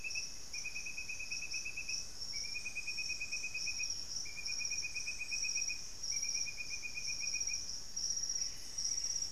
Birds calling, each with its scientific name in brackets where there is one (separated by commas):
Buff-breasted Wren (Cantorchilus leucotis), unidentified bird, White-throated Toucan (Ramphastos tucanus)